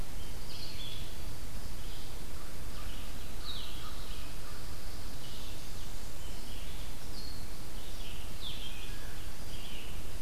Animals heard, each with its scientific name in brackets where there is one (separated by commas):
Red-eyed Vireo (Vireo olivaceus), American Crow (Corvus brachyrhynchos), Blue-headed Vireo (Vireo solitarius)